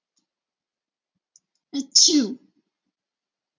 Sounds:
Sneeze